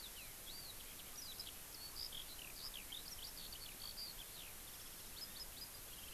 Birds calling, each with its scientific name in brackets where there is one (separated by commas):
Eurasian Skylark (Alauda arvensis)